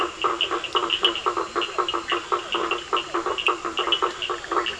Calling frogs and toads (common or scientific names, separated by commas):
blacksmith tree frog, Leptodactylus latrans, Cochran's lime tree frog